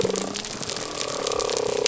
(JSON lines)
{"label": "biophony", "recorder": "SoundTrap 300"}